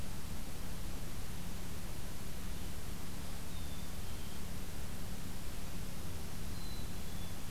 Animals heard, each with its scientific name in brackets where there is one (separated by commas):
Black-capped Chickadee (Poecile atricapillus)